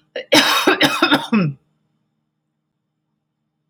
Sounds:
Cough